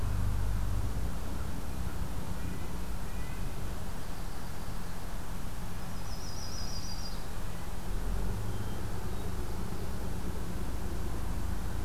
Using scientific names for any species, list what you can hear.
Sitta canadensis, Setophaga coronata, Catharus guttatus